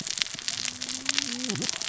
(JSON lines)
{"label": "biophony, cascading saw", "recorder": "SoundTrap 600 or HydroMoth"}